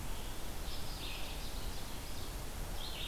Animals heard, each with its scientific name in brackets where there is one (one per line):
Red-eyed Vireo (Vireo olivaceus)
Ovenbird (Seiurus aurocapilla)